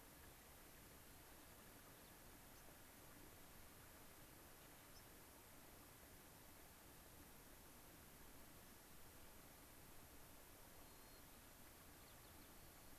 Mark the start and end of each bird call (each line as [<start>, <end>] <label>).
[2.53, 2.63] White-crowned Sparrow (Zonotrichia leucophrys)
[4.93, 5.03] White-crowned Sparrow (Zonotrichia leucophrys)
[10.73, 12.93] White-crowned Sparrow (Zonotrichia leucophrys)